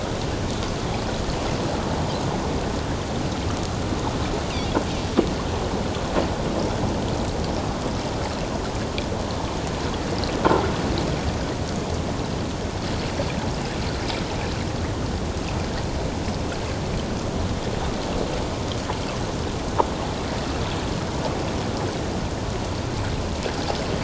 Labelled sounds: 4.5	4.8	Pacific white-sided dolphin, 3.2 to 3.8 kHz

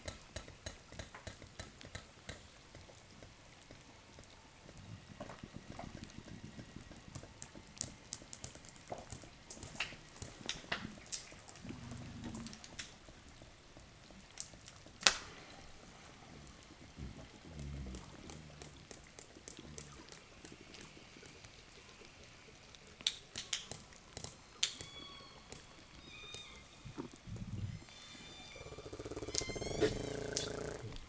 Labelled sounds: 24.3	27.0	killer whale, southern resident, 0 to 7.5 kHz
27.7	31.0	killer whale, southern resident, 0 to 8.0 kHz

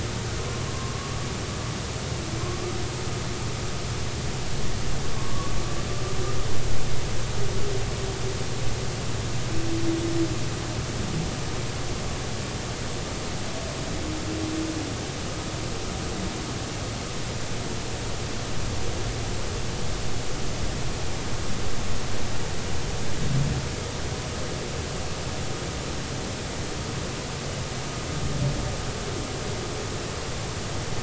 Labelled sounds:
0.7	1.3	humpback whale, 1.0 to 1.2 kHz
5.1	5.5	humpback whale, 1.0 to 1.2 kHz

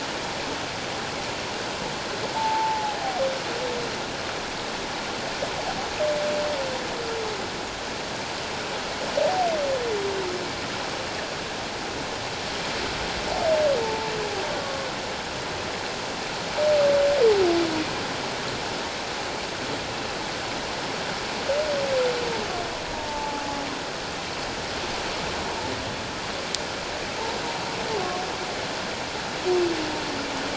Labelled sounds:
2.4	3.0	humpback whale, 0.78 to 0.97 kHz
13.8	14.9	humpback whale, 0.84 to 1.2 kHz
22.9	23.4	humpback whale, 0.81 to 0.94 kHz

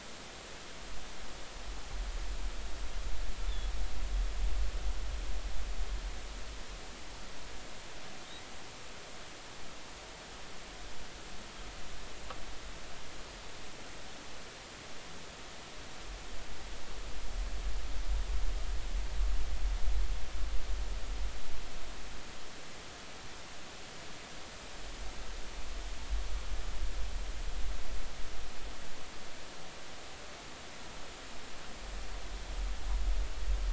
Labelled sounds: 3.4	3.7	humpback whale, 3.3 to 3.6 kHz

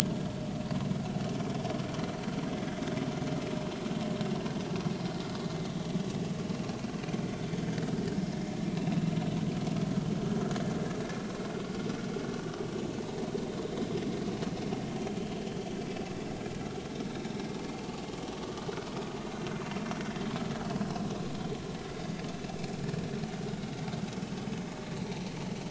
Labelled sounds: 12.3	12.6	vessel noise, 2.8 to 3.0 kHz
18.4	18.7	vessel noise, 1.1 to 1.2 kHz

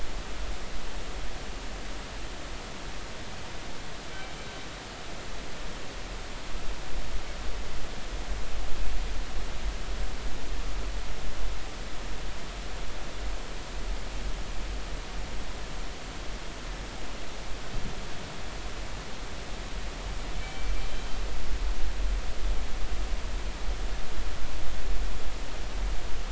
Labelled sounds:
20.4	20.7	killer whale, northern resident, G clan, 2.2 to 3.2 kHz

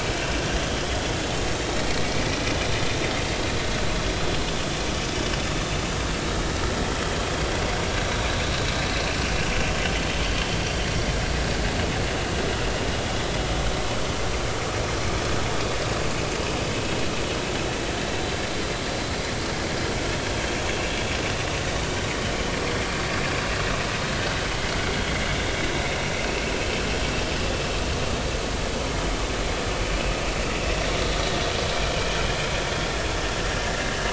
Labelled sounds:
10.6	10.8	vessel noise, 4.5 to 4.7 kHz
21.7	21.9	vessel noise, 2.6 to 2.9 kHz
26.2	26.4	vessel noise, 2.5 to 2.8 kHz
27.2	27.4	vessel noise, 4.8 to 5.0 kHz
33.7	34.0	vessel noise, 1.6 to 1.9 kHz

